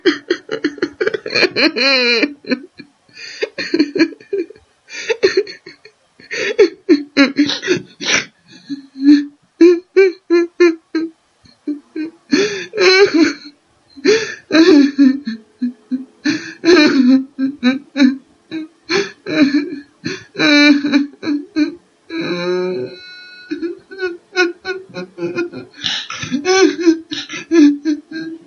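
A woman cries loudly in a repeating, echoing pattern. 0.0 - 28.5

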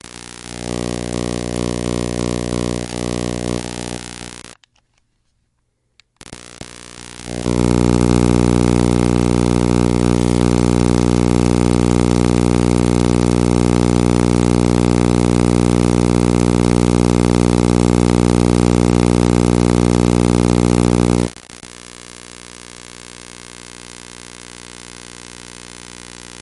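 A harsh mechanical whirr hums as an old electric drill struggles to spin, producing an uneven, gritty industrial buzz. 0.3 - 26.4

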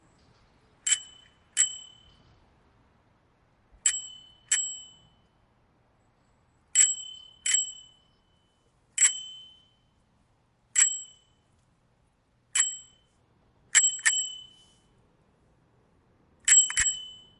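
A bike bell rings twice. 0.8 - 2.0
A bike bell rings twice. 3.8 - 5.1
A bike bell rings twice. 6.7 - 8.1
A bike bell rings once. 8.9 - 9.6
A bike bell rings once. 10.7 - 11.4
A bike bell rings shortly. 12.5 - 13.0
A bike bell rings twice shortly. 13.7 - 14.7
A bike bell rings twice shortly. 16.4 - 17.4

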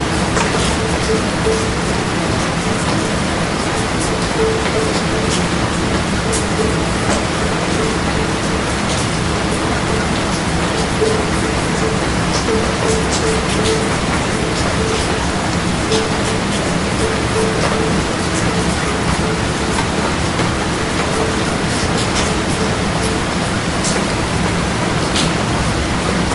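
A steady loud sound continues in the background. 0.0 - 26.3
Water droplets repeatedly drop on a metal surface. 0.0 - 26.3

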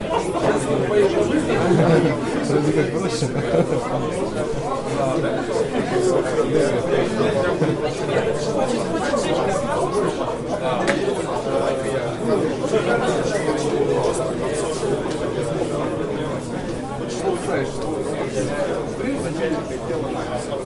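Multiple people are talking simultaneously. 0.0 - 20.6

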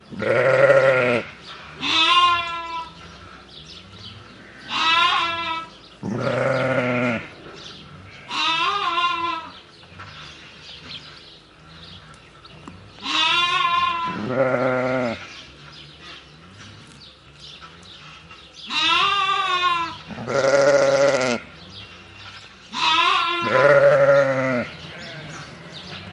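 Birds are singing outdoors. 0.0 - 26.1
A sheep bleats in a low pitch. 0.2 - 1.3
A sheep bleats in a high pitch. 1.8 - 2.9
A sheep bleats in a high pitch. 4.7 - 5.7
A sheep bleats in a low pitch. 6.0 - 7.2
A sheep bleats in a high pitch. 8.3 - 9.5
A small twig breaks. 12.0 - 12.2
A small object hits the ground. 12.6 - 12.8
A sheep bleats in a high pitch. 13.0 - 14.2
A sheep bleats in a low pitch. 14.2 - 15.2
A sheep bleats in a high pitch. 18.7 - 19.9
A sheep bleats in a low pitch. 20.1 - 21.4
A sheep bleats in a high pitch. 22.7 - 23.9
A sheep bleats in a low pitch. 23.4 - 24.7
A sheep bleats in the distance. 24.7 - 25.5

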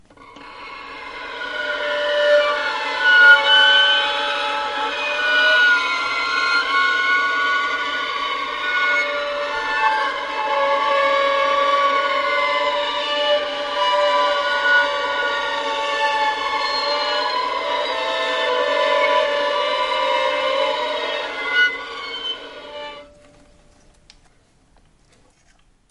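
High-pitched violin effects are layered. 0.1 - 23.2

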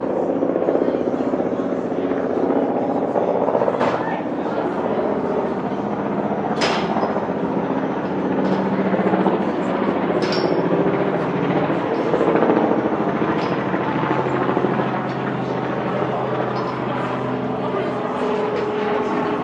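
Helicopter rotors produce a deep, rhythmic chopping sound while low-pitch music and people talking are heard in the background. 0.0 - 19.3

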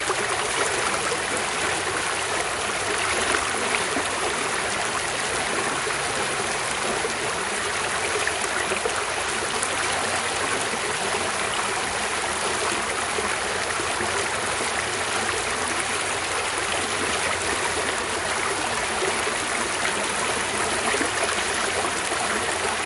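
A flowing stream with gentle highs and lows accompanied by bubbling. 0.0 - 22.9

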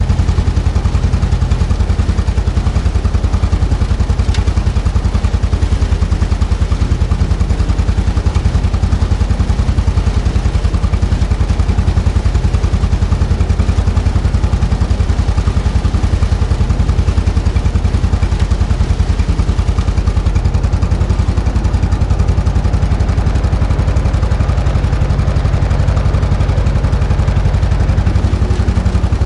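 A lawn mower engine runs with a rhythmic, consistent sound that increases in speed at the end. 0.0 - 29.3

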